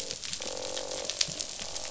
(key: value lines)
label: biophony, croak
recorder: SoundTrap 500